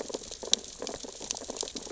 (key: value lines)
label: biophony, sea urchins (Echinidae)
recorder: SoundTrap 600 or HydroMoth